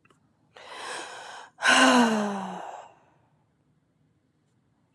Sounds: Sigh